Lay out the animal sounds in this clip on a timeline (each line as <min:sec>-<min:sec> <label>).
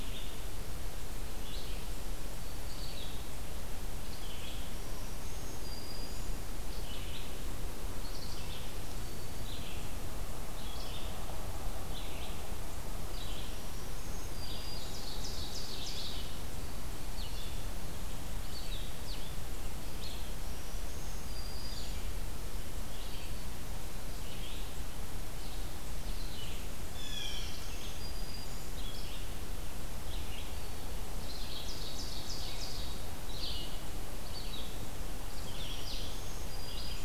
0:00.0-0:08.7 Red-eyed Vireo (Vireo olivaceus)
0:04.4-0:06.6 Black-throated Green Warbler (Setophaga virens)
0:09.3-0:37.0 Red-eyed Vireo (Vireo olivaceus)
0:13.2-0:15.4 Black-throated Green Warbler (Setophaga virens)
0:14.3-0:16.4 Ovenbird (Seiurus aurocapilla)
0:20.3-0:22.2 Black-throated Green Warbler (Setophaga virens)
0:26.9-0:27.4 Blue Jay (Cyanocitta cristata)
0:27.0-0:29.0 Black-throated Green Warbler (Setophaga virens)
0:31.1-0:33.2 Ovenbird (Seiurus aurocapilla)
0:33.2-0:37.0 Blue-headed Vireo (Vireo solitarius)
0:35.4-0:37.0 Black-throated Green Warbler (Setophaga virens)